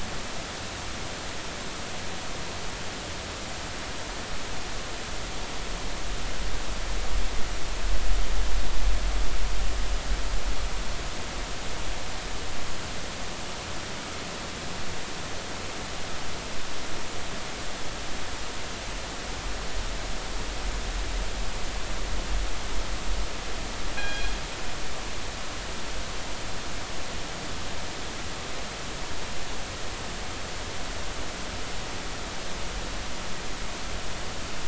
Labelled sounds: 24.0	24.3	killer whale, northern resident, G clan, call N24ii, 1.6 to 3.3 kHz

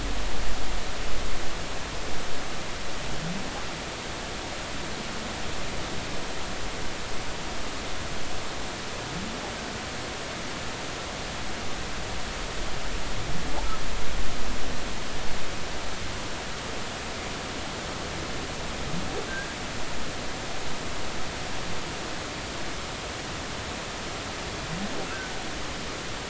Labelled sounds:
19.3	19.6	humpback whale, 1.5 to 1.7 kHz
25.1	25.4	humpback whale, 1.3 to 1.6 kHz

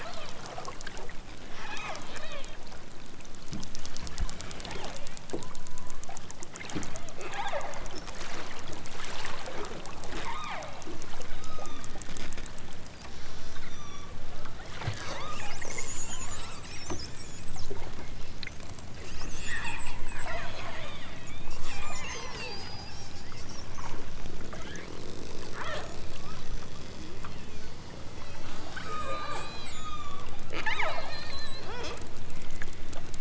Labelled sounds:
0.0	0.4	killer whale, southern Alaska resident, 0.43 to 1.8 kHz
1.5	2.5	killer whale, southern Alaska resident, 0.28 to 5.2 kHz
4.6	5.1	killer whale, southern Alaska resident, 0.51 to 4.2 kHz
6.9	7.8	killer whale, southern Alaska resident, 0.23 to 4.7 kHz
9.5	9.8	killer whale, southern Alaska resident, 0.26 to 1.8 kHz
10.1	10.7	killer whale, southern Alaska resident, 0.23 to 4.2 kHz
11.3	12.0	killer whale, southern Alaska resident, 0.74 to 6.8 kHz
13.0	14.2	killer whale, southern Alaska resident, 0.74 to 8.0 kHz
15.0	15.5	killer whale, southern Alaska resident, 0.28 to 4.3 kHz
19.3	19.9	killer whale, southern Alaska resident, 0.41 to 6.1 kHz
20.1	21.6	killer whale, southern Alaska resident, 0.37 to 5.1 kHz
24.5	24.9	killer whale, southern Alaska resident, 0.92 to 4.0 kHz
25.4	26.0	killer whale, southern Alaska resident, 0.37 to 4.7 kHz
28.8	31.1	killer whale, southern Alaska resident, 0.28 to 8.0 kHz
31.6	32.0	killer whale, southern Alaska resident, 0.23 to 8.0 kHz

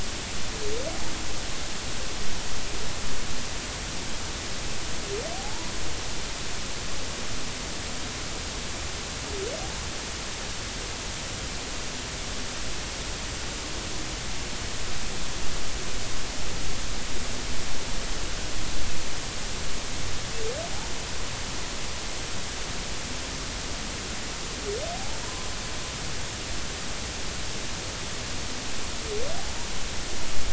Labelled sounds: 5.3	5.7	humpback whale, 0.80 to 1.1 kHz
24.9	25.5	humpback whale, 0.80 to 1.1 kHz

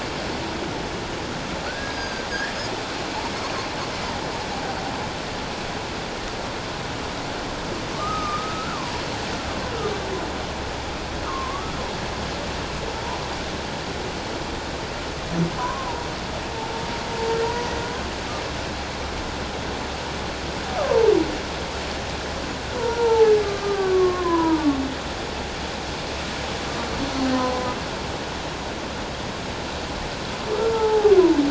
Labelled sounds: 1.7	2.3	humpback whale, 1.3 to 6.5 kHz
8.0	9.0	humpback whale, 0.88 to 1.5 kHz
11.3	11.7	humpback whale, 0.97 to 1.3 kHz
13.0	13.2	humpback whale, 0.84 to 1.0 kHz
15.6	16.1	humpback whale, 0.88 to 1.1 kHz
17.6	17.8	humpback whale, 6.1 to 6.3 kHz
20.8	21.1	humpback whale, 0.81 to 1.3 kHz
22.8	24.8	humpback whale, 0.78 to 1.5 kHz
27.3	27.8	humpback whale, 0.97 to 1.1 kHz
30.7	31.1	humpback whale, 0.78 to 0.94 kHz

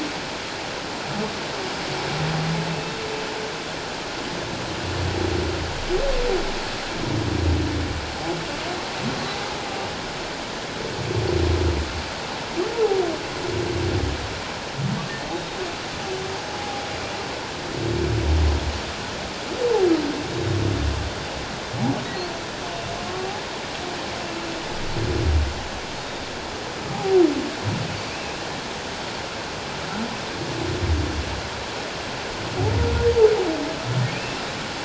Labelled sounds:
2.7	3.0	humpback whale, 2.6 to 2.7 kHz
15.3	15.6	humpback whale, 3.7 to 3.8 kHz
16.5	16.8	humpback whale, 0.78 to 0.88 kHz
23.1	23.3	humpback whale, 1.0 to 1.2 kHz
26.0	27.2	humpback whale, 0.78 to 3.8 kHz

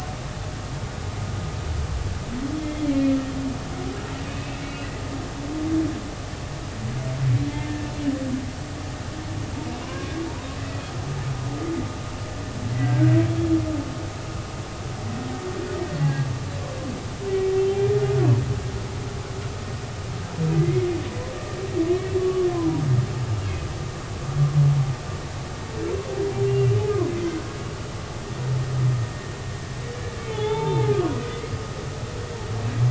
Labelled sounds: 2.5	2.9	humpback whale, 2.0 to 3.5 kHz
4.2	4.6	humpback whale, 2.5 to 2.8 kHz
9.8	10.6	humpback whale, 0.90 to 1.1 kHz
16.0	16.3	humpback whale, 1.9 to 2.0 kHz
17.3	17.5	humpback whale, 2.2 to 2.4 kHz
20.5	20.9	humpback whale, 2.0 to 2.2 kHz
22.2	22.8	humpback whale, 0.90 to 1.2 kHz
26.5	26.7	humpback whale, 2.7 to 2.9 kHz
30.2	31.2	humpback whale, 0.80 to 3.6 kHz

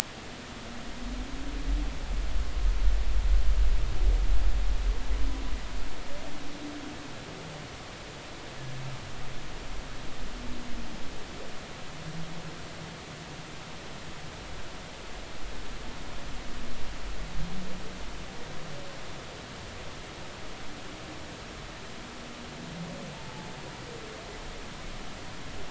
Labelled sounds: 23.1	23.5	humpback whale, 0.83 to 0.93 kHz

